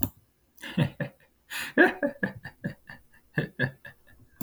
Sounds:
Laughter